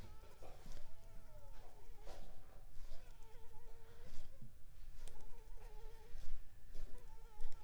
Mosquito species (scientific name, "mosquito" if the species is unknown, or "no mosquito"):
Anopheles arabiensis